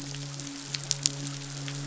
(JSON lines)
{"label": "biophony, midshipman", "recorder": "SoundTrap 500"}